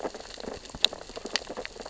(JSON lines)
{"label": "biophony, sea urchins (Echinidae)", "recorder": "SoundTrap 600 or HydroMoth"}